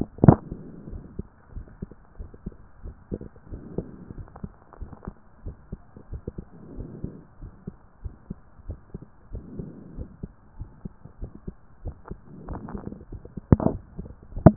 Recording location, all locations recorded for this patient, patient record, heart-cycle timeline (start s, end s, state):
pulmonary valve (PV)
aortic valve (AV)+pulmonary valve (PV)+tricuspid valve (TV)+mitral valve (MV)+mitral valve (MV)
#Age: nan
#Sex: Female
#Height: nan
#Weight: nan
#Pregnancy status: True
#Murmur: Absent
#Murmur locations: nan
#Most audible location: nan
#Systolic murmur timing: nan
#Systolic murmur shape: nan
#Systolic murmur grading: nan
#Systolic murmur pitch: nan
#Systolic murmur quality: nan
#Diastolic murmur timing: nan
#Diastolic murmur shape: nan
#Diastolic murmur grading: nan
#Diastolic murmur pitch: nan
#Diastolic murmur quality: nan
#Outcome: Normal
#Campaign: 2014 screening campaign
0.00	0.82	unannotated
0.82	0.90	diastole
0.90	1.02	S1
1.02	1.16	systole
1.16	1.26	S2
1.26	1.54	diastole
1.54	1.66	S1
1.66	1.80	systole
1.80	1.90	S2
1.90	2.18	diastole
2.18	2.30	S1
2.30	2.44	systole
2.44	2.54	S2
2.54	2.84	diastole
2.84	2.94	S1
2.94	3.10	systole
3.10	3.20	S2
3.20	3.50	diastole
3.50	3.62	S1
3.62	3.76	systole
3.76	3.86	S2
3.86	4.16	diastole
4.16	4.26	S1
4.26	4.42	systole
4.42	4.52	S2
4.52	4.80	diastole
4.80	4.90	S1
4.90	5.06	systole
5.06	5.14	S2
5.14	5.44	diastole
5.44	5.56	S1
5.56	5.70	systole
5.70	5.80	S2
5.80	6.10	diastole
6.10	6.22	S1
6.22	6.36	systole
6.36	6.44	S2
6.44	6.76	diastole
6.76	6.88	S1
6.88	7.02	systole
7.02	7.14	S2
7.14	7.42	diastole
7.42	7.52	S1
7.52	7.66	systole
7.66	7.76	S2
7.76	8.02	diastole
8.02	8.14	S1
8.14	8.28	systole
8.28	8.38	S2
8.38	8.66	diastole
8.66	8.78	S1
8.78	8.94	systole
8.94	9.02	S2
9.02	9.32	diastole
9.32	9.44	S1
9.44	9.58	systole
9.58	9.70	S2
9.70	9.96	diastole
9.96	10.08	S1
10.08	10.22	systole
10.22	10.32	S2
10.32	10.58	diastole
10.58	10.70	S1
10.70	10.84	systole
10.84	10.92	S2
10.92	11.20	diastole
11.20	11.32	S1
11.32	11.46	systole
11.46	11.56	S2
11.56	11.84	diastole
11.84	11.96	S1
11.96	12.10	systole
12.10	12.18	S2
12.18	12.48	diastole
12.48	12.62	S1
12.62	12.74	systole
12.74	12.82	S2
12.82	12.94	diastole
12.94	14.56	unannotated